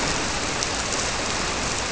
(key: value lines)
label: biophony
recorder: SoundTrap 300